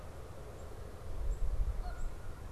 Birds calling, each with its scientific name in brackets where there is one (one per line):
Black-capped Chickadee (Poecile atricapillus)
Canada Goose (Branta canadensis)